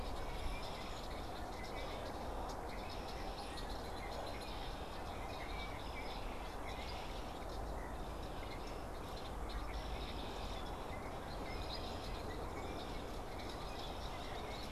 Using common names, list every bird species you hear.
Red-winged Blackbird, Brown-headed Cowbird